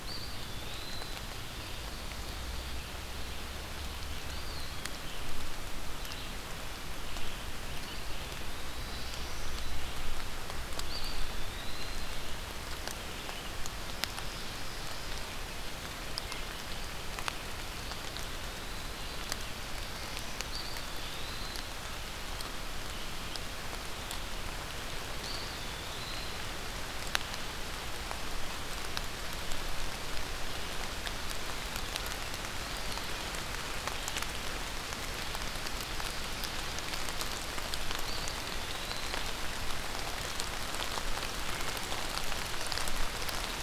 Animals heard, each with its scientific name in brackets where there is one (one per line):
Ovenbird (Seiurus aurocapilla)
Red-eyed Vireo (Vireo olivaceus)
Eastern Wood-Pewee (Contopus virens)
Black-throated Blue Warbler (Setophaga caerulescens)